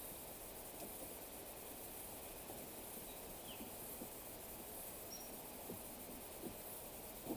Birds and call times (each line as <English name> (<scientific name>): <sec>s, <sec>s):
Waller's Starling (Onychognathus walleri): 3.0s